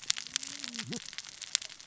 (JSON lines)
{"label": "biophony, cascading saw", "recorder": "SoundTrap 600 or HydroMoth"}